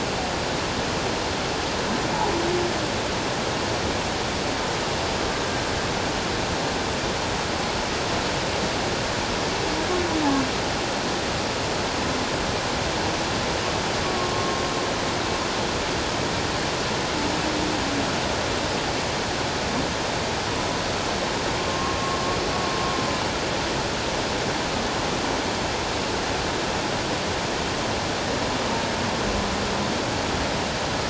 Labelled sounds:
14.3	14.6	humpback whale, 1.0 to 1.1 kHz
21.7	22.0	humpback whale, 1.0 to 1.2 kHz

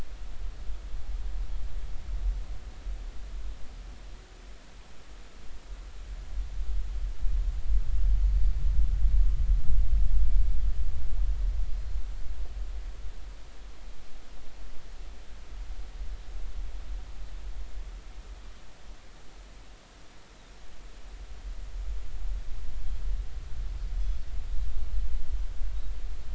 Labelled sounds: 11.7	11.9	Pacific white-sided dolphin, 4.1 to 4.3 kHz

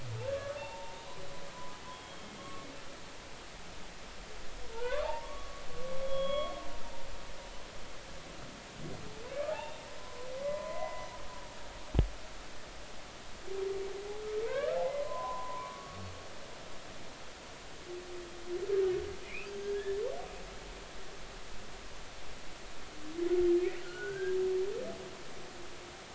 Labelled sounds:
0.6	1.1	humpback whale, 0.80 to 3.7 kHz
1.9	2.7	humpback whale, 1.1 to 3.3 kHz
4.7	5.6	humpback whale, 0.80 to 1.8 kHz
6.0	6.6	humpback whale, 1.1 to 3.4 kHz
9.5	11.1	humpback whale, 0.90 to 3.7 kHz
14.4	16.0	humpback whale, 0.80 to 1.9 kHz
19.2	20.0	humpback whale, 1.6 to 2.8 kHz
23.8	24.4	humpback whale, 1.4 to 1.7 kHz

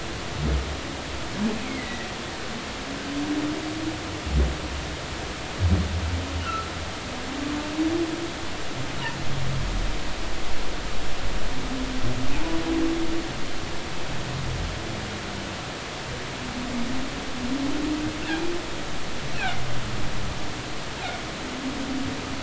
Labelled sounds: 1.6	2.1	humpback whale, 1.9 to 2.6 kHz
6.4	6.7	humpback whale, 1.2 to 1.5 kHz
19.3	19.6	humpback whale, 2.0 to 2.8 kHz

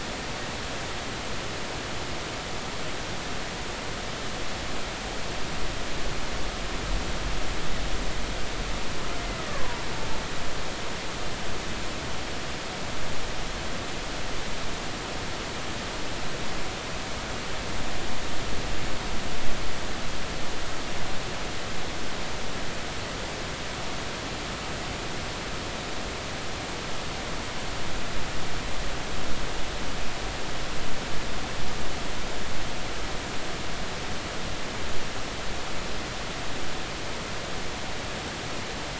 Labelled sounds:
9.4	9.8	killer whale, Bigg's (transient), 0.90 to 2.0 kHz

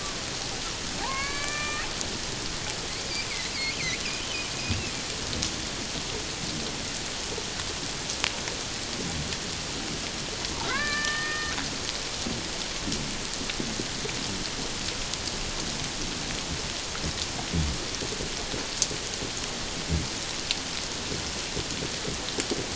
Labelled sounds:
1.0	1.9	killer whale, Bigg's (transient), 0.78 to 4.8 kHz
4.0	4.2	killer whale, Bigg's (transient), 2.3 to 2.8 kHz
10.6	11.5	killer whale, Bigg's (transient), 0.94 to 2.4 kHz

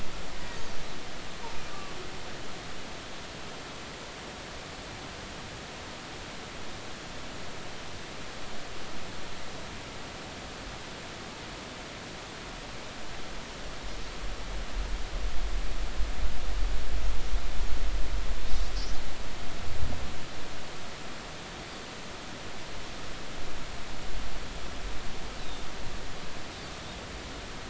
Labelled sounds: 2.7	3.0	humpback whale, 1.1 to 1.2 kHz
25.4	25.6	Pacific white-sided dolphin, 3.5 to 4.0 kHz

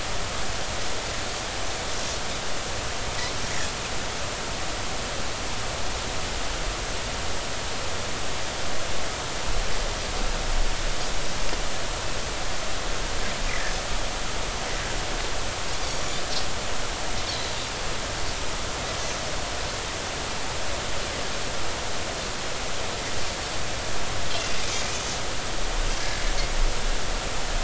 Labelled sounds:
17.3	17.6	Pacific white-sided dolphin, 3.9 to 4.1 kHz

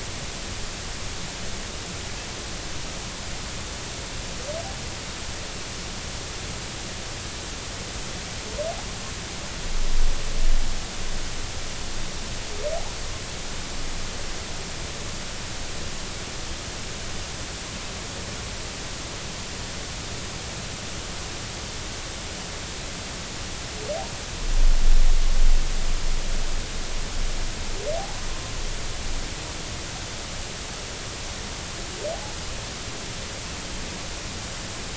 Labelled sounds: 28.0	28.3	humpback whale, 0.80 to 1.1 kHz

